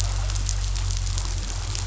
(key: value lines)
label: anthrophony, boat engine
recorder: SoundTrap 500